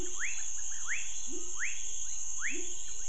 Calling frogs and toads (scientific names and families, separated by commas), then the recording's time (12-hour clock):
Leptodactylus fuscus (Leptodactylidae), Leptodactylus labyrinthicus (Leptodactylidae)
9:00pm